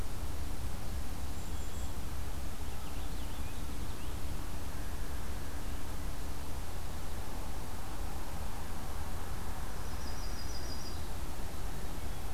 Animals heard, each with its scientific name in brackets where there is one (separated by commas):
Yellow-rumped Warbler (Setophaga coronata), Purple Finch (Haemorhous purpureus), Golden-crowned Kinglet (Regulus satrapa), Black-capped Chickadee (Poecile atricapillus)